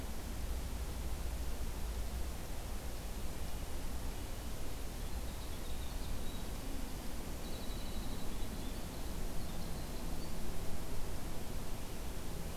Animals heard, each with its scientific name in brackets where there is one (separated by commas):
Red-breasted Nuthatch (Sitta canadensis), Winter Wren (Troglodytes hiemalis)